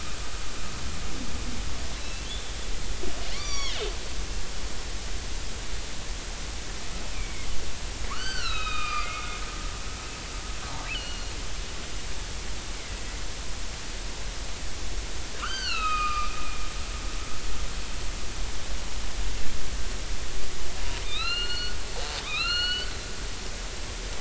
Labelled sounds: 2.0	2.6	killer whale, northern resident, 2.6 to 4.1 kHz
3.3	3.8	killer whale, northern resident, 0.96 to 6.0 kHz
7.1	7.5	killer whale, northern resident, 2.0 to 2.5 kHz
8.1	9.2	killer whale, northern resident, 0.99 to 6.1 kHz
10.9	11.3	killer whale, northern resident, 2.8 to 4.6 kHz
15.3	16.4	killer whale, northern resident, 1.0 to 6.3 kHz
21.0	22.9	killer whale, northern resident, 1.1 to 4.6 kHz

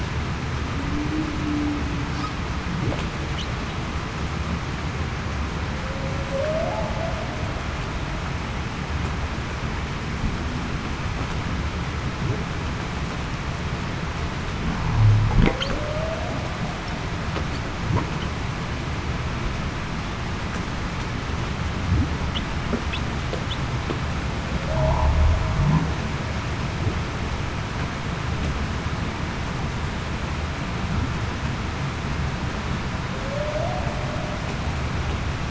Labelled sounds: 1.4	1.8	humpback whale, 0.26 to 0.33 kHz
6.3	6.7	humpback whale, 0.52 to 0.70 kHz
15.5	16.3	humpback whale, 0.49 to 0.75 kHz
24.7	25.1	humpback whale, 0.84 to 1.0 kHz
33.2	33.8	humpback whale, 0.52 to 0.77 kHz

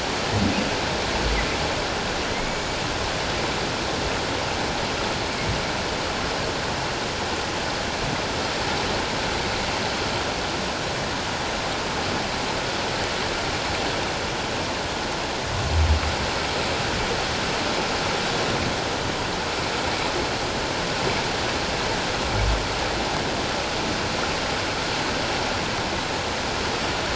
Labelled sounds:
2.3	2.7	humpback whale, 1.9 to 6.9 kHz

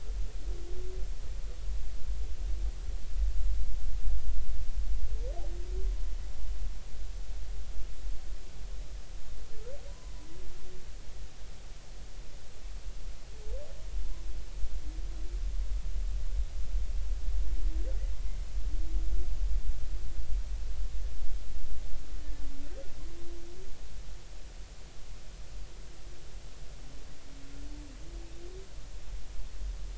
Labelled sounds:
9.9	10.1	humpback whale, 0.93 to 1.1 kHz

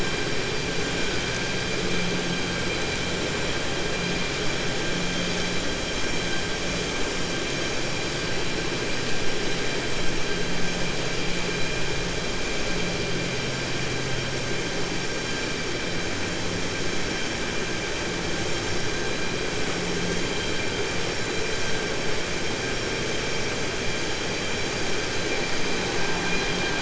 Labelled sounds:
25.9	26.8	vessel noise, 0.71 to 4.9 kHz

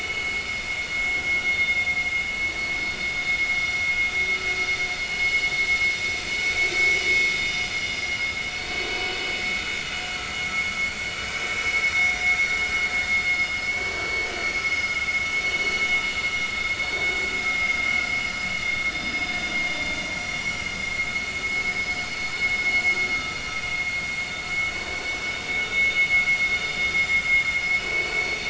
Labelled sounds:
0.0	0.2	vessel noise, 2.5 to 2.6 kHz
1.5	1.8	vessel noise, 3.5 to 3.6 kHz
8.8	9.1	vessel noise, 4.4 to 4.5 kHz
11.9	12.2	vessel noise, 2.0 to 2.3 kHz
13.3	14.3	vessel noise, 4.4 to 5.1 kHz
14.6	15.0	vessel noise, 2.1 to 5.1 kHz
17.5	17.8	vessel noise, 2.0 to 2.2 kHz
20.0	20.6	vessel noise, 5.6 to 5.7 kHz
21.7	22.0	vessel noise, 5.1 to 5.2 kHz
23.4	23.7	vessel noise, 5.6 to 5.8 kHz
25.0	25.2	vessel noise, 5.1 to 5.2 kHz
26.9	27.2	vessel noise, 7.1 to 7.3 kHz
27.8	28.2	vessel noise, 2.5 to 4.5 kHz

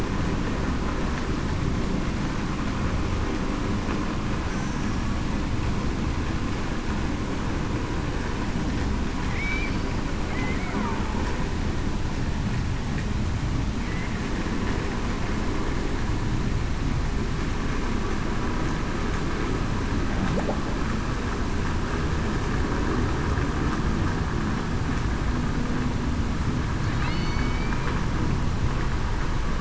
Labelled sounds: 4.7	5.1	killer whale, Bigg's (transient), 5.4 to 5.7 kHz
9.3	9.8	killer whale, Bigg's (transient), 2.0 to 2.4 kHz
27.1	27.5	killer whale, Bigg's (transient), 2.8 to 3.0 kHz

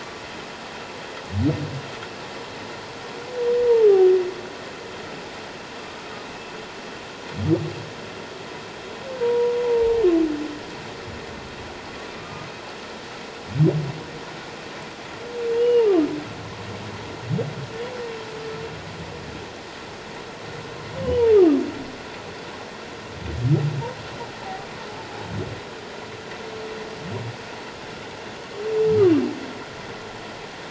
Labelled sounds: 9.2	10.0	humpback whale, 0.81 to 1.0 kHz
12.1	12.5	humpback whale, 1.2 to 1.3 kHz
15.5	15.9	humpback whale, 2.7 to 2.9 kHz
24.4	24.7	humpback whale, 0.78 to 0.97 kHz

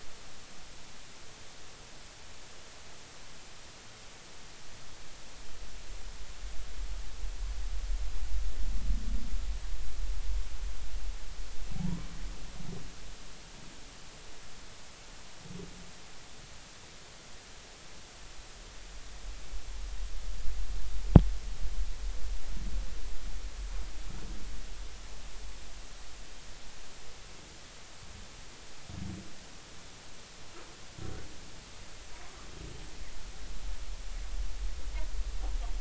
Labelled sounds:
11.8	12.1	humpback whale, 0.80 to 1.1 kHz

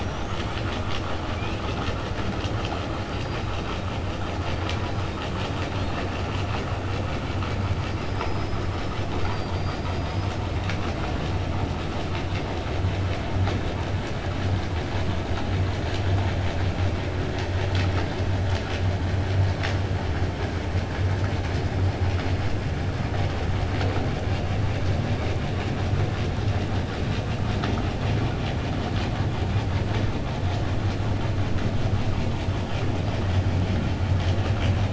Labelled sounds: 8.0	10.4	killer whale, 4.4 to 7.4 kHz

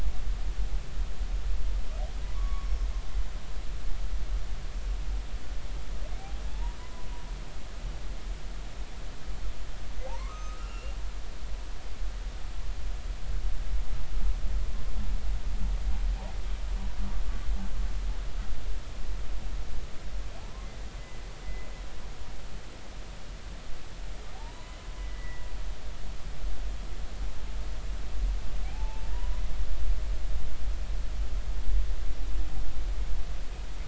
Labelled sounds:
2.3	2.9	humpback whale, 0.96 to 5.6 kHz
6.5	7.1	humpback whale, 0.83 to 1.1 kHz
10.0	11.0	humpback whale, 0.80 to 6.4 kHz
20.4	20.7	humpback whale, 0.80 to 1.2 kHz
24.3	25.5	humpback whale, 0.80 to 2.1 kHz
28.6	29.1	humpback whale, 0.80 to 0.96 kHz

